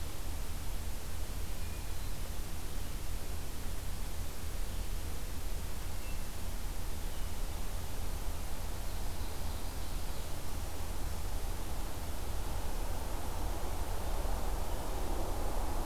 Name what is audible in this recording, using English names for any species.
Hermit Thrush, Ovenbird